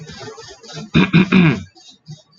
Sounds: Throat clearing